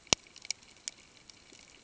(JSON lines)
{"label": "ambient", "recorder": "HydroMoth"}